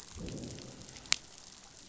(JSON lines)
{"label": "biophony, growl", "recorder": "SoundTrap 500"}